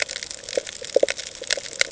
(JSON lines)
{"label": "ambient", "recorder": "HydroMoth"}